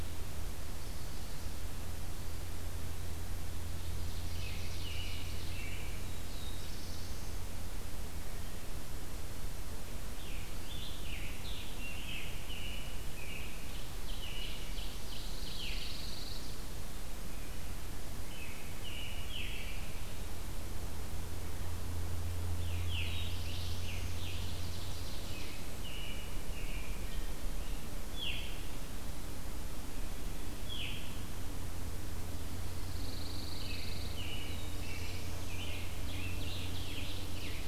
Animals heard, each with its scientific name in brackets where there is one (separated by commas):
American Robin (Turdus migratorius), Veery (Catharus fuscescens), Scarlet Tanager (Piranga olivacea), Black-throated Blue Warbler (Setophaga caerulescens), Ovenbird (Seiurus aurocapilla), Pine Warbler (Setophaga pinus)